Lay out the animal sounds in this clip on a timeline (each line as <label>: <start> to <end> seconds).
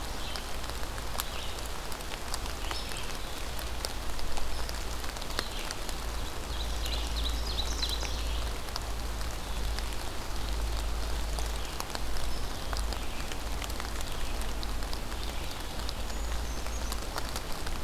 Red-eyed Vireo (Vireo olivaceus): 0.0 to 5.9 seconds
Ovenbird (Seiurus aurocapilla): 6.4 to 8.5 seconds
Ovenbird (Seiurus aurocapilla): 9.3 to 11.4 seconds
Brown Creeper (Certhia americana): 16.0 to 17.1 seconds